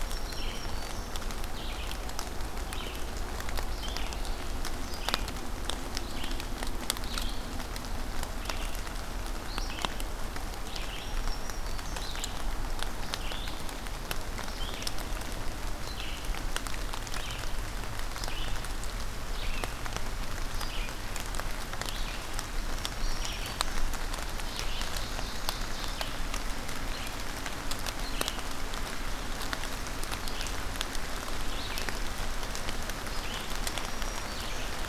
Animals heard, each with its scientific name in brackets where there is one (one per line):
Ovenbird (Seiurus aurocapilla)
Red-eyed Vireo (Vireo olivaceus)
Black-throated Green Warbler (Setophaga virens)